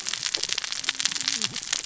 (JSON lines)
{"label": "biophony, cascading saw", "recorder": "SoundTrap 600 or HydroMoth"}